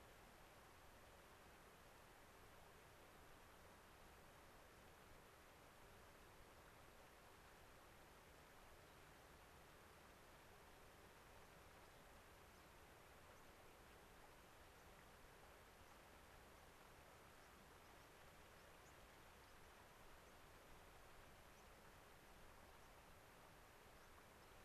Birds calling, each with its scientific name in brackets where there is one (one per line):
White-crowned Sparrow (Zonotrichia leucophrys)